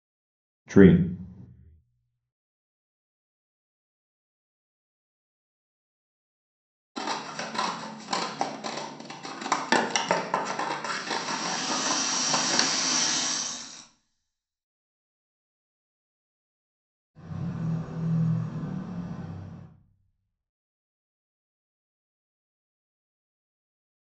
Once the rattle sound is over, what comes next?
car